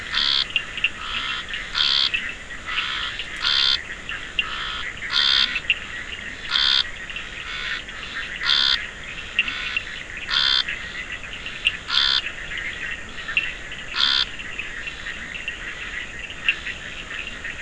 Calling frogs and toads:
Bischoff's tree frog (Boana bischoffi), Scinax perereca, Cochran's lime tree frog (Sphaenorhynchus surdus)

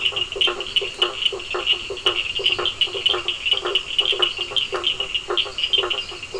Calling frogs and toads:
blacksmith tree frog (Boana faber), Cochran's lime tree frog (Sphaenorhynchus surdus), two-colored oval frog (Elachistocleis bicolor), lesser tree frog (Dendropsophus minutus)

